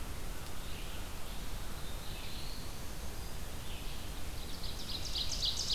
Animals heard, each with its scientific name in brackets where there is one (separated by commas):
Ovenbird (Seiurus aurocapilla), Black-throated Blue Warbler (Setophaga caerulescens), Red-eyed Vireo (Vireo olivaceus)